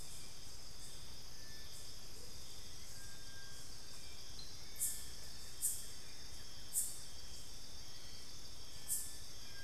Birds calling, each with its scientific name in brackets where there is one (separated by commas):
Buff-throated Woodcreeper (Xiphorhynchus guttatus), Amazonian Motmot (Momotus momota)